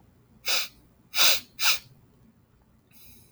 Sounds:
Sniff